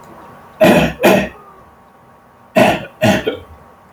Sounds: Throat clearing